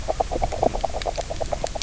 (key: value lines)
label: biophony, knock croak
recorder: SoundTrap 300